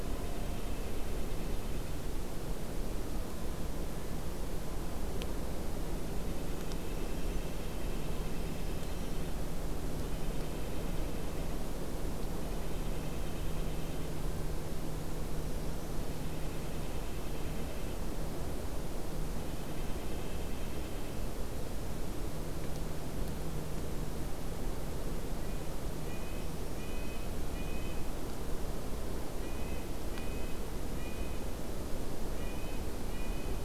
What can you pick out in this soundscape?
Red-breasted Nuthatch, Black-throated Green Warbler